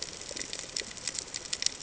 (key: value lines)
label: ambient
recorder: HydroMoth